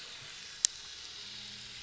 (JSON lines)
{"label": "anthrophony, boat engine", "recorder": "SoundTrap 500"}